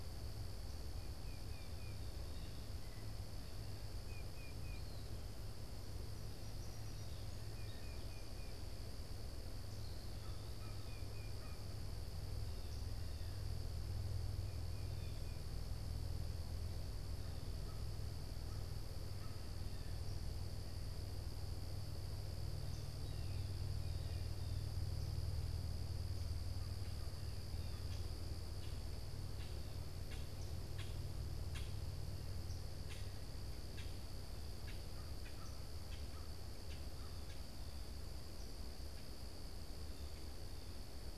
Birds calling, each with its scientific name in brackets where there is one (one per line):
Song Sparrow (Melospiza melodia)
American Crow (Corvus brachyrhynchos)
Blue Jay (Cyanocitta cristata)
Common Grackle (Quiscalus quiscula)